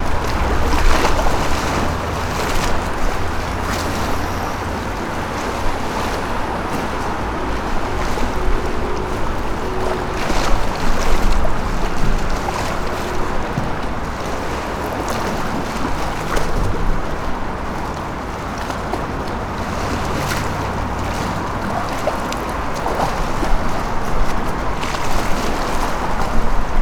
Is water flowing?
yes